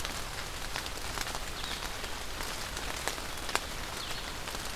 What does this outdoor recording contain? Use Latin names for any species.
Vireo solitarius